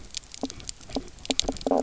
{"label": "biophony, knock croak", "recorder": "SoundTrap 300"}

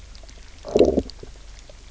{"label": "biophony, low growl", "recorder": "SoundTrap 300"}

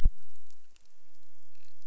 {"label": "biophony", "recorder": "SoundTrap 300"}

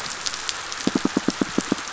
{"label": "biophony, pulse", "recorder": "SoundTrap 500"}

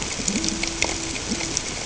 {"label": "ambient", "recorder": "HydroMoth"}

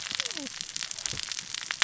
{"label": "biophony, cascading saw", "recorder": "SoundTrap 600 or HydroMoth"}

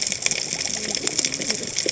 {"label": "biophony, cascading saw", "recorder": "HydroMoth"}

